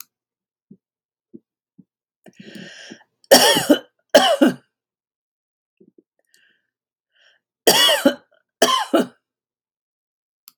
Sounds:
Cough